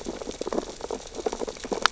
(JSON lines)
{"label": "biophony, sea urchins (Echinidae)", "recorder": "SoundTrap 600 or HydroMoth"}